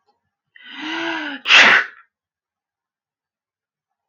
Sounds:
Sneeze